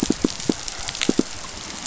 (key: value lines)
label: biophony, pulse
recorder: SoundTrap 500